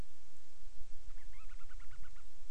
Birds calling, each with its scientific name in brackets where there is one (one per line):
Band-rumped Storm-Petrel (Hydrobates castro)